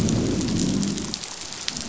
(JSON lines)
{"label": "biophony, growl", "recorder": "SoundTrap 500"}